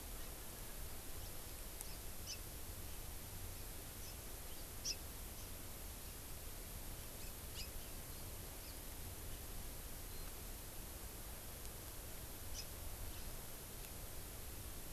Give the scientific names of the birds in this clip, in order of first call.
Haemorhous mexicanus